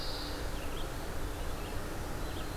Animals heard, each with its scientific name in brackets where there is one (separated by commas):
Pine Warbler (Setophaga pinus), Black-throated Green Warbler (Setophaga virens), Red-eyed Vireo (Vireo olivaceus)